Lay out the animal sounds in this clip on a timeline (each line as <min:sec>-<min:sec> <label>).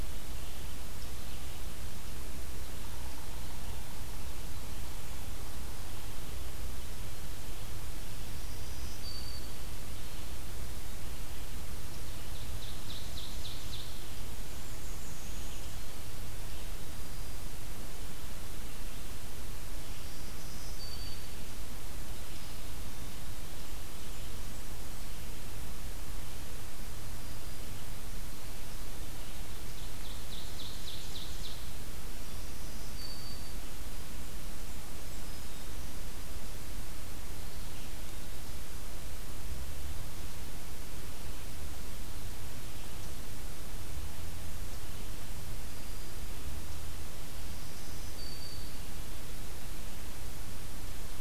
0:08.0-0:09.8 Black-throated Green Warbler (Setophaga virens)
0:11.7-0:14.6 Ovenbird (Seiurus aurocapilla)
0:14.2-0:15.7 unidentified call
0:19.7-0:21.3 Black-throated Green Warbler (Setophaga virens)
0:29.4-0:31.8 Ovenbird (Seiurus aurocapilla)
0:32.1-0:33.6 Black-throated Green Warbler (Setophaga virens)
0:47.0-0:49.2 Black-throated Green Warbler (Setophaga virens)